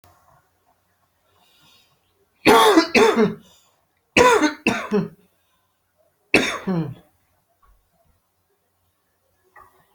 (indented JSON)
{
  "expert_labels": [
    {
      "quality": "good",
      "cough_type": "unknown",
      "dyspnea": false,
      "wheezing": false,
      "stridor": false,
      "choking": false,
      "congestion": false,
      "nothing": true,
      "diagnosis": "healthy cough",
      "severity": "pseudocough/healthy cough"
    }
  ],
  "age": 31,
  "gender": "male",
  "respiratory_condition": true,
  "fever_muscle_pain": true,
  "status": "symptomatic"
}